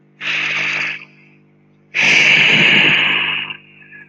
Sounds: Sigh